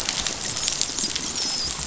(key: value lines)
label: biophony, dolphin
recorder: SoundTrap 500